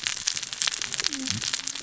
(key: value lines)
label: biophony, cascading saw
recorder: SoundTrap 600 or HydroMoth